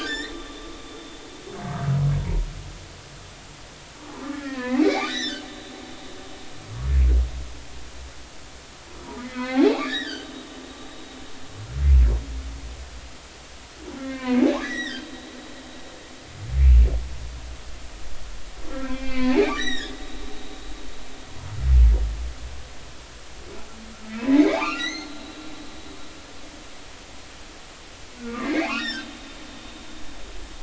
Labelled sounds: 2.2	2.5	humpback whale, 0.90 to 1.1 kHz
4.4	5.4	humpback whale, 0.93 to 5.5 kHz
6.0	6.4	humpback whale, 3.4 to 4.0 kHz
9.0	10.3	humpback whale, 0.80 to 4.4 kHz
14.0	15.4	humpback whale, 0.93 to 6.0 kHz
18.7	20.0	humpback whale, 1.5 to 7.9 kHz
24.1	25.1	humpback whale, 0.80 to 6.6 kHz
28.2	29.1	humpback whale, 0.99 to 3.8 kHz

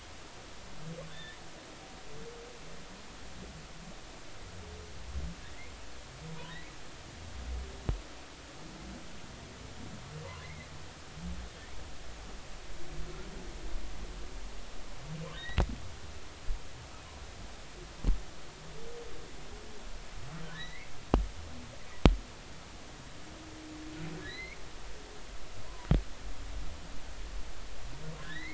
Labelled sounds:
1.1	1.4	humpback whale, 1.7 to 3.7 kHz
10.2	10.7	humpback whale, 0.93 to 2.2 kHz
15.4	15.6	humpback whale, 3.6 to 4.0 kHz
20.5	20.9	humpback whale, 1.6 to 2.4 kHz
24.2	24.6	humpback whale, 1.6 to 4.3 kHz
28.2	28.5	humpback whale, 1.4 to 4.4 kHz

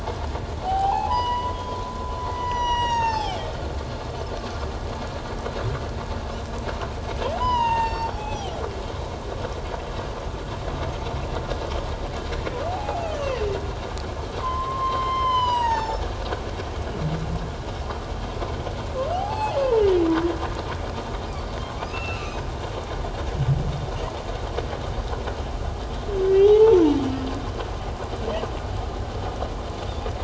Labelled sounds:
0.6	3.5	humpback whale, 0.78 to 7.9 kHz
7.4	8.6	humpback whale, 0.78 to 7.0 kHz
12.7	13.4	humpback whale, 0.78 to 3.3 kHz
14.4	16.0	humpback whale, 0.78 to 7.2 kHz
19.1	19.8	humpback whale, 0.78 to 7.9 kHz
21.9	22.4	humpback whale, 1.2 to 2.9 kHz
26.3	26.8	humpback whale, 0.78 to 3.4 kHz

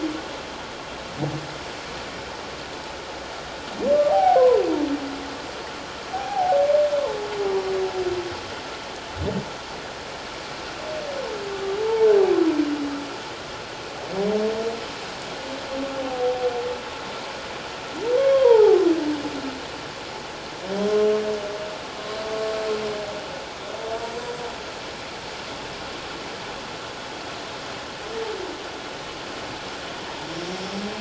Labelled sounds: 4.1	4.6	humpback whale, 0.78 to 1.1 kHz
6.1	6.6	humpback whale, 0.78 to 0.88 kHz
16.0	16.5	humpback whale, 0.78 to 0.81 kHz
18.2	18.8	humpback whale, 0.78 to 1.7 kHz

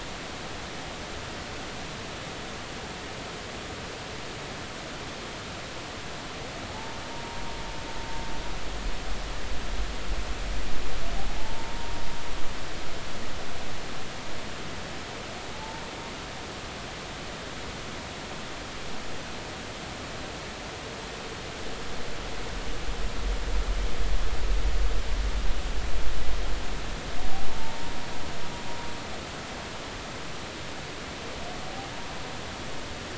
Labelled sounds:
6.7	7.0	humpback whale, 0.80 to 0.96 kHz
11.3	11.9	humpback whale, 0.80 to 0.96 kHz
15.5	15.8	humpback whale, 0.83 to 0.96 kHz
27.5	28.0	humpback whale, 0.86 to 0.99 kHz

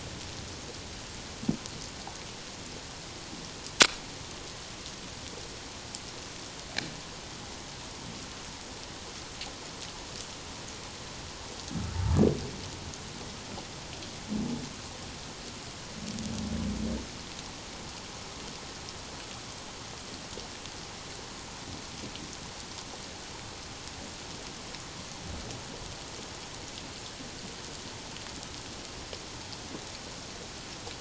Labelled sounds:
11.7	12.0	humpback whale, 1.2 to 1.5 kHz

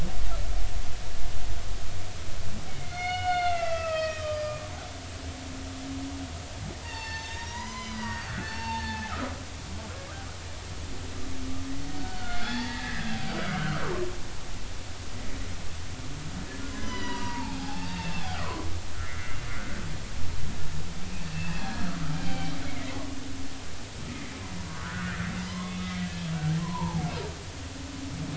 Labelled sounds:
2.7	4.7	humpback whale, 1.1 to 5.2 kHz
6.8	9.7	humpback whale, 0.80 to 7.2 kHz
12.0	13.2	humpback whale, 0.80 to 3.5 kHz
13.6	13.9	humpback whale, 1.2 to 1.6 kHz
16.7	18.7	humpback whale, 0.80 to 7.0 kHz
19.0	19.4	humpback whale, 1.3 to 2.2 kHz
21.3	22.6	humpback whale, 0.80 to 3.2 kHz
24.7	27.0	humpback whale, 0.80 to 2.6 kHz

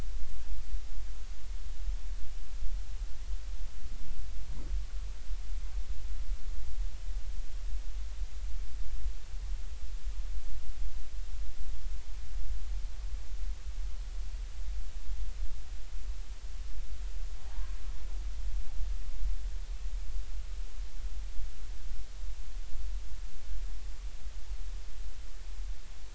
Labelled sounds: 17.5	17.8	humpback whale, 0.80 to 1.2 kHz

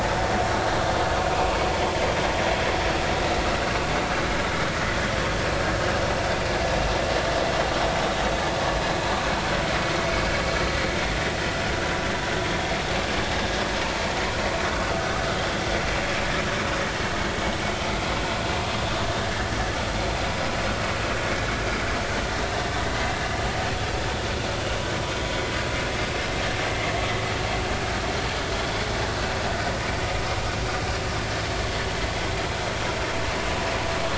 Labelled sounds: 12.5	12.7	vessel noise, 3.2 to 3.4 kHz
19.2	19.5	vessel noise, 1.5 to 1.9 kHz
28.5	28.9	vessel noise, 3.3 to 3.5 kHz

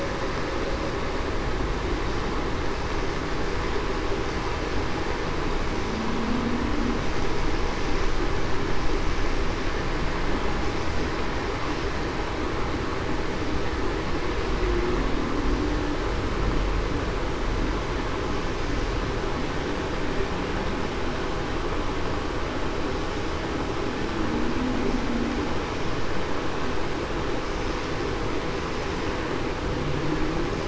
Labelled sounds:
5.9	6.4	humpback whale, 0.19 to 0.26 kHz

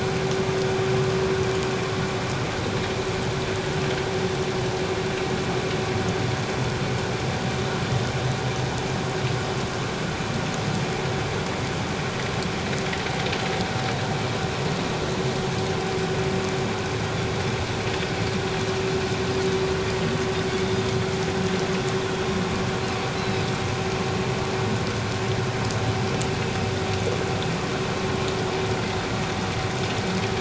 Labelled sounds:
23.2	23.4	Pacific white-sided dolphin, 3.8 to 4.1 kHz

